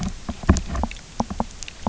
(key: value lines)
label: biophony, knock
recorder: SoundTrap 300